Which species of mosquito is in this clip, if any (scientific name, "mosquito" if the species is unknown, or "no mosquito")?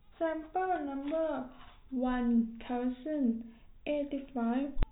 no mosquito